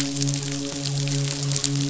{"label": "biophony, midshipman", "recorder": "SoundTrap 500"}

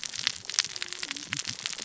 {"label": "biophony, cascading saw", "recorder": "SoundTrap 600 or HydroMoth"}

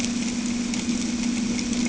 {"label": "anthrophony, boat engine", "recorder": "HydroMoth"}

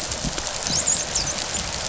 {"label": "biophony, dolphin", "recorder": "SoundTrap 500"}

